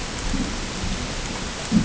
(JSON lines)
{"label": "ambient", "recorder": "HydroMoth"}